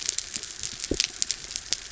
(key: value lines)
label: biophony
recorder: SoundTrap 300